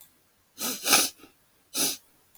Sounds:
Sniff